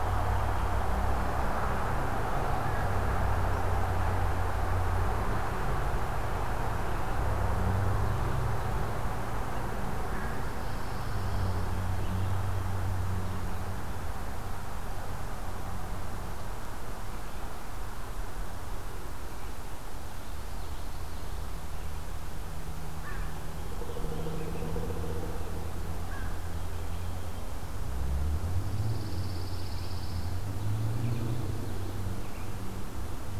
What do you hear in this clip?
Pine Warbler, Common Yellowthroat, American Crow, Pileated Woodpecker